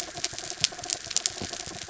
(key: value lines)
label: anthrophony, mechanical
recorder: SoundTrap 300